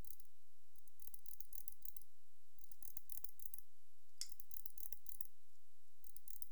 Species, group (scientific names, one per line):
Barbitistes yersini
Orthoptera